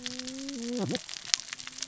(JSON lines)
{"label": "biophony, cascading saw", "recorder": "SoundTrap 600 or HydroMoth"}